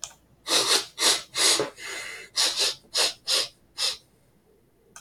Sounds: Sniff